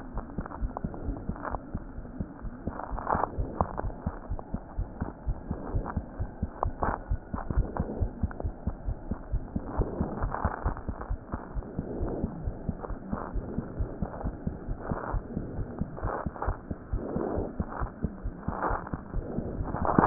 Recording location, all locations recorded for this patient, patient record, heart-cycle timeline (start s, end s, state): aortic valve (AV)
aortic valve (AV)+pulmonary valve (PV)+tricuspid valve (TV)+mitral valve (MV)
#Age: Child
#Sex: Female
#Height: 95.0 cm
#Weight: 14.0 kg
#Pregnancy status: False
#Murmur: Absent
#Murmur locations: nan
#Most audible location: nan
#Systolic murmur timing: nan
#Systolic murmur shape: nan
#Systolic murmur grading: nan
#Systolic murmur pitch: nan
#Systolic murmur quality: nan
#Diastolic murmur timing: nan
#Diastolic murmur shape: nan
#Diastolic murmur grading: nan
#Diastolic murmur pitch: nan
#Diastolic murmur quality: nan
#Outcome: Abnormal
#Campaign: 2015 screening campaign
0.00	4.14	unannotated
4.14	4.30	diastole
4.30	4.40	S1
4.40	4.54	systole
4.54	4.62	S2
4.62	4.78	diastole
4.78	4.88	S1
4.88	5.02	systole
5.02	5.10	S2
5.10	5.28	diastole
5.28	5.38	S1
5.38	5.50	systole
5.50	5.60	S2
5.60	5.76	diastole
5.76	5.86	S1
5.86	5.96	systole
5.96	6.06	S2
6.06	6.20	diastole
6.20	6.30	S1
6.30	6.42	systole
6.42	6.50	S2
6.50	6.64	diastole
6.64	6.74	S1
6.74	6.84	systole
6.84	6.96	S2
6.96	7.10	diastole
7.10	7.18	S1
7.18	7.31	systole
7.31	7.42	S2
7.42	7.54	diastole
7.54	7.68	S1
7.68	7.78	systole
7.78	7.88	S2
7.88	8.00	diastole
8.00	8.12	S1
8.12	8.22	systole
8.22	8.32	S2
8.32	8.44	diastole
8.44	8.54	S1
8.54	8.64	systole
8.64	8.76	S2
8.76	8.88	diastole
8.88	8.96	S1
8.96	9.10	systole
9.10	9.16	S2
9.16	9.34	diastole
9.34	9.44	S1
9.44	9.56	systole
9.56	9.64	S2
9.64	9.78	diastole
9.78	9.88	S1
9.88	9.98	systole
9.98	10.10	S2
10.10	10.22	diastole
10.22	10.34	S1
10.34	10.44	systole
10.44	10.52	S2
10.52	10.66	diastole
10.66	10.76	S1
10.76	10.88	systole
10.88	10.96	S2
10.96	11.10	diastole
11.10	11.17	S1
11.17	11.31	systole
11.31	11.40	S2
11.40	11.54	diastole
11.54	11.64	S1
11.64	11.78	systole
11.78	11.86	S2
11.86	12.00	diastole
12.00	12.12	S1
12.12	12.22	systole
12.22	12.32	S2
12.32	12.46	diastole
12.46	12.54	S1
12.54	12.66	systole
12.66	12.76	S2
12.76	12.89	diastole
12.89	12.96	S1
12.96	13.11	systole
13.11	13.17	S2
13.17	13.32	diastole
13.32	13.42	S1
13.42	13.54	systole
13.54	13.66	S2
13.66	13.78	diastole
13.78	13.90	S1
13.90	14.00	systole
14.00	14.10	S2
14.10	14.23	diastole
14.23	14.34	S1
14.34	14.44	systole
14.44	14.56	S2
14.56	14.66	diastole
14.66	14.80	S1
14.80	14.88	systole
14.88	14.98	S2
14.98	15.12	diastole
15.12	15.21	S1
15.21	15.34	systole
15.34	15.43	S2
15.43	15.56	diastole
15.56	15.68	S1
15.68	15.78	systole
15.78	15.88	S2
15.88	16.03	diastole
16.03	16.14	S1
16.14	16.25	systole
16.25	16.32	S2
16.32	16.47	diastole
16.47	16.54	S1
16.54	16.68	systole
16.68	16.78	S2
16.78	16.92	diastole
16.92	17.04	S1
17.04	17.14	systole
17.14	17.24	S2
17.24	17.36	diastole
17.36	17.45	S1
17.45	17.58	systole
17.58	17.66	S2
17.66	17.77	diastole
17.77	17.90	S1
17.90	18.02	systole
18.02	18.14	S2
18.14	18.24	diastole
18.24	18.34	S1
18.34	20.06	unannotated